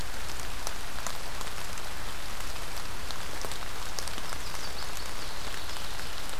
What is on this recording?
Chestnut-sided Warbler, Ovenbird